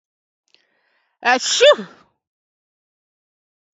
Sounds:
Sneeze